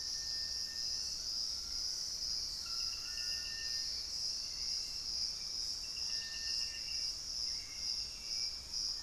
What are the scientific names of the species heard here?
Formicarius analis, Ramphastos tucanus, Crypturellus soui, Nystalus obamai, Turdus hauxwelli, Campylorhynchus turdinus